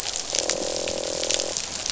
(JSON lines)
{"label": "biophony, croak", "recorder": "SoundTrap 500"}